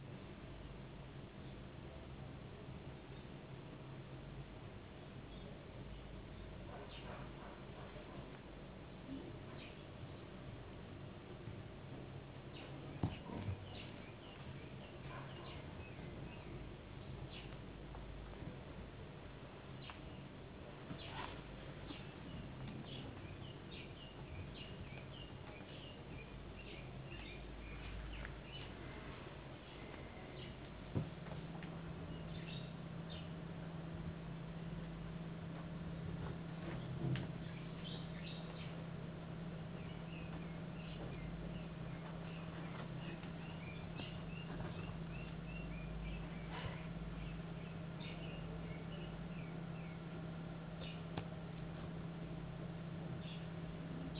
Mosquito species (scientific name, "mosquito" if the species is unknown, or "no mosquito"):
no mosquito